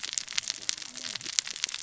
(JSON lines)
{"label": "biophony, cascading saw", "recorder": "SoundTrap 600 or HydroMoth"}